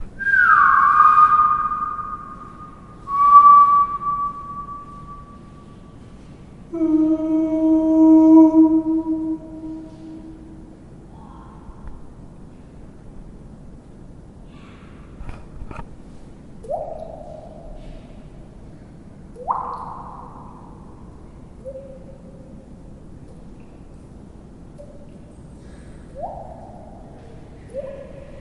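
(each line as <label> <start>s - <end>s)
A man whistles loudly twice with an echo in the background. 0.2s - 2.4s
A man whistles loudly once, with an echo in the background. 2.9s - 4.4s
A man boos at varying volumes with an echo bouncing back. 6.6s - 9.5s
The sound of a hand smoothly stroking a cave wall. 11.6s - 12.3s
A man is stroking a surface smoothly twice. 15.1s - 16.3s
A drop of water falls loudly into the water, echoing off the cave walls. 16.5s - 18.1s
A drop of water falls loudly into the water, echoing off the cave walls. 19.2s - 21.0s
A drop of water falls smoothly into the water, echoing from the cave walls. 21.5s - 22.1s
Several drops of water fall smoothly into the water, creating gentle echoes from the cave walls. 23.3s - 25.9s
A drop of water falls loudly into the water, echoing off the cave walls. 26.1s - 27.0s
A drop of water falls loudly into the water, echoing off the cave walls. 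27.6s - 28.4s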